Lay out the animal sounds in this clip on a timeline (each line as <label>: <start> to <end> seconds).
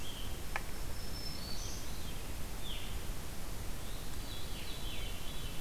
Black-throated Green Warbler (Setophaga virens): 0.8 to 1.9 seconds
Veery (Catharus fuscescens): 1.0 to 2.3 seconds
Veery (Catharus fuscescens): 2.5 to 2.9 seconds
Veery (Catharus fuscescens): 3.8 to 5.6 seconds